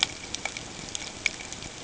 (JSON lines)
{"label": "ambient", "recorder": "HydroMoth"}